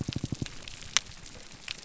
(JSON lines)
{"label": "biophony", "recorder": "SoundTrap 300"}